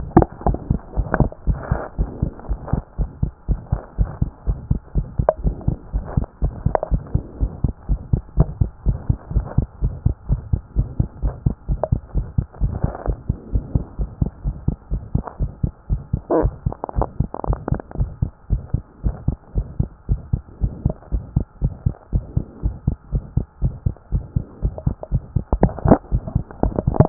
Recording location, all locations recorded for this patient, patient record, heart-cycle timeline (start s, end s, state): pulmonary valve (PV)
aortic valve (AV)+pulmonary valve (PV)+tricuspid valve (TV)+mitral valve (MV)
#Age: Child
#Sex: Female
#Height: 114.0 cm
#Weight: 17.7 kg
#Pregnancy status: False
#Murmur: Present
#Murmur locations: aortic valve (AV)+pulmonary valve (PV)+tricuspid valve (TV)
#Most audible location: tricuspid valve (TV)
#Systolic murmur timing: Early-systolic
#Systolic murmur shape: Decrescendo
#Systolic murmur grading: I/VI
#Systolic murmur pitch: Low
#Systolic murmur quality: Blowing
#Diastolic murmur timing: nan
#Diastolic murmur shape: nan
#Diastolic murmur grading: nan
#Diastolic murmur pitch: nan
#Diastolic murmur quality: nan
#Outcome: Abnormal
#Campaign: 2014 screening campaign
0.00	0.04	S1
0.04	0.14	systole
0.14	0.26	S2
0.26	0.46	diastole
0.46	0.58	S1
0.58	0.70	systole
0.70	0.80	S2
0.80	0.96	diastole
0.96	1.08	S1
1.08	1.18	systole
1.18	1.30	S2
1.30	1.48	diastole
1.48	1.58	S1
1.58	1.70	systole
1.70	1.80	S2
1.80	1.98	diastole
1.98	2.10	S1
2.10	2.22	systole
2.22	2.32	S2
2.32	2.48	diastole
2.48	2.60	S1
2.60	2.72	systole
2.72	2.82	S2
2.82	2.98	diastole
2.98	3.10	S1
3.10	3.22	systole
3.22	3.32	S2
3.32	3.48	diastole
3.48	3.60	S1
3.60	3.72	systole
3.72	3.80	S2
3.80	3.98	diastole
3.98	4.10	S1
4.10	4.20	systole
4.20	4.30	S2
4.30	4.46	diastole
4.46	4.58	S1
4.58	4.70	systole
4.70	4.80	S2
4.80	4.96	diastole
4.96	5.06	S1
5.06	5.18	systole
5.18	5.28	S2
5.28	5.44	diastole
5.44	5.56	S1
5.56	5.66	systole
5.66	5.76	S2
5.76	5.94	diastole
5.94	6.04	S1
6.04	6.16	systole
6.16	6.26	S2
6.26	6.42	diastole
6.42	6.54	S1
6.54	6.64	systole
6.64	6.74	S2
6.74	6.92	diastole
6.92	7.02	S1
7.02	7.14	systole
7.14	7.22	S2
7.22	7.40	diastole
7.40	7.52	S1
7.52	7.62	systole
7.62	7.72	S2
7.72	7.88	diastole
7.88	8.00	S1
8.00	8.12	systole
8.12	8.22	S2
8.22	8.38	diastole
8.38	8.48	S1
8.48	8.60	systole
8.60	8.70	S2
8.70	8.86	diastole
8.86	8.98	S1
8.98	9.08	systole
9.08	9.18	S2
9.18	9.34	diastole
9.34	9.46	S1
9.46	9.56	systole
9.56	9.66	S2
9.66	9.82	diastole
9.82	9.94	S1
9.94	10.04	systole
10.04	10.14	S2
10.14	10.30	diastole
10.30	10.40	S1
10.40	10.52	systole
10.52	10.60	S2
10.60	10.76	diastole
10.76	10.88	S1
10.88	10.98	systole
10.98	11.08	S2
11.08	11.22	diastole
11.22	11.34	S1
11.34	11.44	systole
11.44	11.54	S2
11.54	11.68	diastole
11.68	11.80	S1
11.80	11.90	systole
11.90	12.00	S2
12.00	12.16	diastole
12.16	12.26	S1
12.26	12.36	systole
12.36	12.46	S2
12.46	12.62	diastole
12.62	12.74	S1
12.74	12.82	systole
12.82	12.92	S2
12.92	13.06	diastole
13.06	13.18	S1
13.18	13.28	systole
13.28	13.36	S2
13.36	13.52	diastole
13.52	13.64	S1
13.64	13.74	systole
13.74	13.84	S2
13.84	13.98	diastole
13.98	14.10	S1
14.10	14.20	systole
14.20	14.30	S2
14.30	14.44	diastole
14.44	14.56	S1
14.56	14.66	systole
14.66	14.76	S2
14.76	14.92	diastole
14.92	15.02	S1
15.02	15.14	systole
15.14	15.24	S2
15.24	15.40	diastole
15.40	15.50	S1
15.50	15.62	systole
15.62	15.72	S2
15.72	15.90	diastole
15.90	16.02	S1
16.02	16.12	systole
16.12	16.20	S2
16.20	16.36	diastole
16.36	16.52	S1
16.52	16.64	systole
16.64	16.74	S2
16.74	16.96	diastole
16.96	17.08	S1
17.08	17.18	systole
17.18	17.28	S2
17.28	17.48	diastole
17.48	17.58	S1
17.58	17.70	systole
17.70	17.80	S2
17.80	17.98	diastole
17.98	18.10	S1
18.10	18.22	systole
18.22	18.30	S2
18.30	18.50	diastole
18.50	18.62	S1
18.62	18.72	systole
18.72	18.82	S2
18.82	19.04	diastole
19.04	19.16	S1
19.16	19.26	systole
19.26	19.36	S2
19.36	19.56	diastole
19.56	19.66	S1
19.66	19.78	systole
19.78	19.88	S2
19.88	20.10	diastole
20.10	20.20	S1
20.20	20.32	systole
20.32	20.42	S2
20.42	20.62	diastole
20.62	20.72	S1
20.72	20.84	systole
20.84	20.94	S2
20.94	21.12	diastole
21.12	21.24	S1
21.24	21.36	systole
21.36	21.44	S2
21.44	21.62	diastole
21.62	21.74	S1
21.74	21.84	systole
21.84	21.94	S2
21.94	22.12	diastole
22.12	22.24	S1
22.24	22.36	systole
22.36	22.44	S2
22.44	22.64	diastole
22.64	22.74	S1
22.74	22.86	systole
22.86	22.96	S2
22.96	23.12	diastole
23.12	23.24	S1
23.24	23.36	systole
23.36	23.46	S2
23.46	23.62	diastole
23.62	23.74	S1
23.74	23.84	systole
23.84	23.94	S2
23.94	24.12	diastole
24.12	24.24	S1
24.24	24.36	systole
24.36	24.44	S2
24.44	24.62	diastole
24.62	24.74	S1
24.74	24.86	systole
24.86	24.96	S2
24.96	25.12	diastole
25.12	25.22	S1
25.22	25.34	systole
25.34	25.44	S2
25.44	25.60	diastole
25.60	25.72	S1
25.72	25.84	systole
25.84	25.98	S2
25.98	26.12	diastole
26.12	26.22	S1
26.22	26.34	systole
26.34	26.44	S2
26.44	26.64	diastole
26.64	26.74	S1
26.74	26.96	systole
26.96	27.06	S2
27.06	27.09	diastole